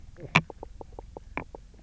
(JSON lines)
{"label": "biophony, knock croak", "recorder": "SoundTrap 300"}